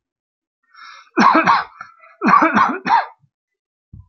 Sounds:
Cough